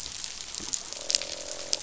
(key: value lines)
label: biophony, croak
recorder: SoundTrap 500